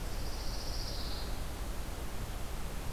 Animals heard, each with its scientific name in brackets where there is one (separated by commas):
Pine Warbler (Setophaga pinus)